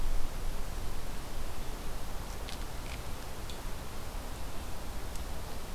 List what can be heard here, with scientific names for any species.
forest ambience